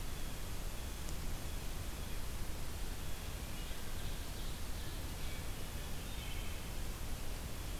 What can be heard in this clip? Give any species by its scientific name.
Cyanocitta cristata, Seiurus aurocapilla, Catharus guttatus, Hylocichla mustelina